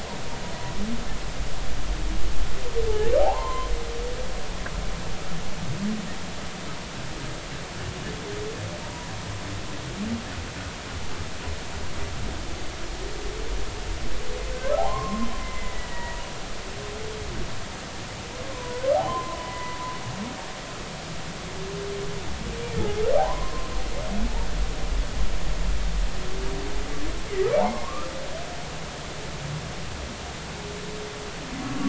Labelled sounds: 3.2	3.7	humpback whale, 0.80 to 2.1 kHz
8.8	9.1	humpback whale, 0.90 to 1.0 kHz
14.8	16.2	humpback whale, 0.80 to 2.1 kHz
18.5	19.8	humpback whale, 0.90 to 2.1 kHz
23.2	23.7	humpback whale, 0.80 to 1.1 kHz
27.6	28.1	humpback whale, 0.80 to 5.4 kHz

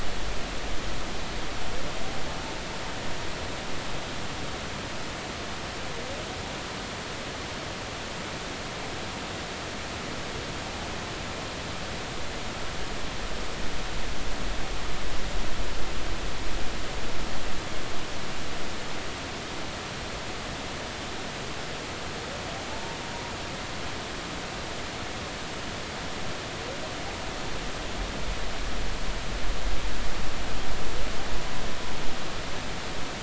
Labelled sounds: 22.7	23.0	humpback whale, 0.83 to 0.99 kHz

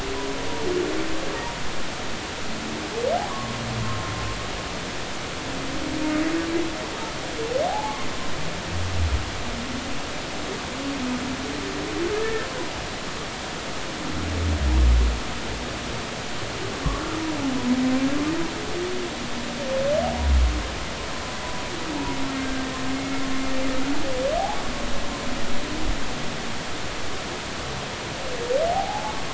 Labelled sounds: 3.3	3.5	humpback whale, 0.96 to 1.2 kHz
7.6	8.0	humpback whale, 0.80 to 0.93 kHz
12.2	12.5	humpback whale, 1.7 to 1.9 kHz
22.4	22.7	humpback whale, 1.5 to 1.6 kHz
23.0	23.3	humpback whale, 2.0 to 2.3 kHz
28.7	29.1	humpback whale, 0.80 to 0.93 kHz

